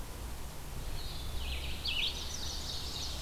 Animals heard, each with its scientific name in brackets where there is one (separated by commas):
Blue-headed Vireo (Vireo solitarius), Red-eyed Vireo (Vireo olivaceus), Chestnut-sided Warbler (Setophaga pensylvanica), Ovenbird (Seiurus aurocapilla)